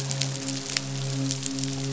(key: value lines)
label: biophony, midshipman
recorder: SoundTrap 500